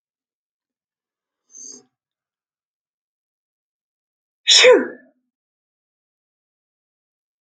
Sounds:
Sneeze